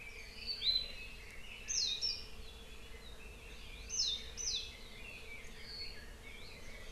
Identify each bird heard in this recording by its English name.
Red-billed Leiothrix, Warbling White-eye